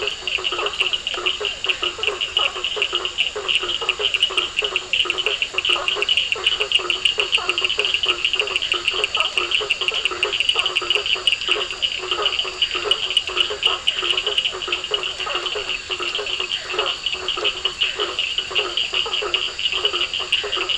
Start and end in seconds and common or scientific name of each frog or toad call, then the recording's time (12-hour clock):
0.0	20.7	blacksmith tree frog
0.0	20.7	two-colored oval frog
0.0	20.7	Physalaemus cuvieri
0.0	20.7	Cochran's lime tree frog
11.4	18.2	Scinax perereca
9:30pm